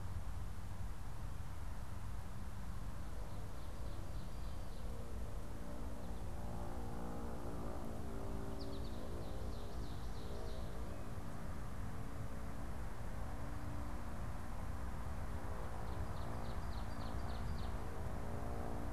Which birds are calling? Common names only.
American Goldfinch, Ovenbird